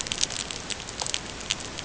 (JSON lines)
{"label": "ambient", "recorder": "HydroMoth"}